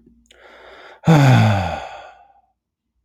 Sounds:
Sigh